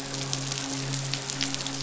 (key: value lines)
label: biophony, midshipman
recorder: SoundTrap 500